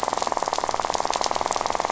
{"label": "biophony, rattle", "recorder": "SoundTrap 500"}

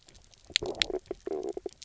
{"label": "biophony, knock croak", "recorder": "SoundTrap 300"}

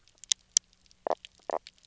{"label": "biophony, knock croak", "recorder": "SoundTrap 300"}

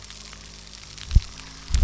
{"label": "anthrophony, boat engine", "recorder": "SoundTrap 300"}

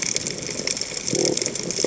{"label": "biophony", "recorder": "HydroMoth"}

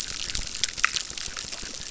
{"label": "biophony, chorus", "recorder": "SoundTrap 600"}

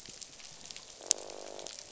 {"label": "biophony, croak", "recorder": "SoundTrap 500"}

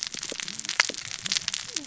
{"label": "biophony, cascading saw", "recorder": "SoundTrap 600 or HydroMoth"}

